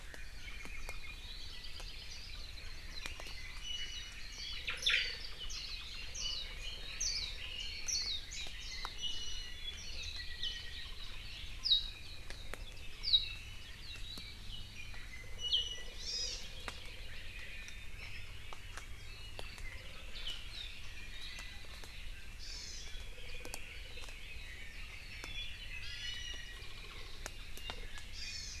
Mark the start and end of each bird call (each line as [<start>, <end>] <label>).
[1.20, 2.20] Hawaii Creeper (Loxops mana)
[3.60, 4.30] Iiwi (Drepanis coccinea)
[4.50, 5.10] Omao (Myadestes obscurus)
[5.40, 8.90] Red-billed Leiothrix (Leiothrix lutea)
[5.50, 5.80] Warbling White-eye (Zosterops japonicus)
[6.10, 6.50] Warbling White-eye (Zosterops japonicus)
[7.00, 7.30] Warbling White-eye (Zosterops japonicus)
[7.60, 8.90] Warbling White-eye (Zosterops japonicus)
[9.00, 9.70] Iiwi (Drepanis coccinea)
[9.80, 10.70] Warbling White-eye (Zosterops japonicus)
[11.60, 12.10] Warbling White-eye (Zosterops japonicus)
[13.00, 13.40] Warbling White-eye (Zosterops japonicus)
[14.50, 16.00] Iiwi (Drepanis coccinea)
[16.00, 16.40] Hawaii Amakihi (Chlorodrepanis virens)
[16.70, 17.60] Hawaii Creeper (Loxops mana)
[22.40, 22.90] Hawaii Amakihi (Chlorodrepanis virens)
[22.80, 25.80] Red-billed Leiothrix (Leiothrix lutea)
[25.80, 26.90] Hawaii Amakihi (Chlorodrepanis virens)
[28.10, 28.60] Hawaii Amakihi (Chlorodrepanis virens)